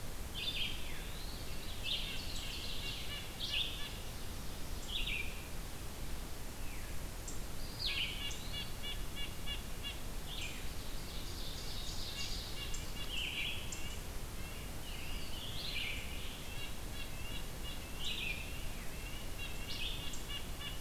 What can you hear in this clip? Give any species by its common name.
Red-eyed Vireo, Eastern Wood-Pewee, Veery, Ovenbird, Red-breasted Nuthatch, Scarlet Tanager